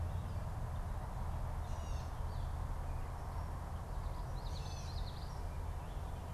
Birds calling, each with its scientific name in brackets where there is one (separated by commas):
Common Yellowthroat (Geothlypis trichas), Gray Catbird (Dumetella carolinensis)